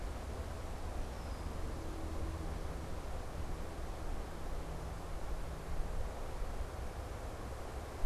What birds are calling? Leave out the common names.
Agelaius phoeniceus